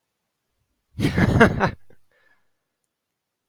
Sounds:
Laughter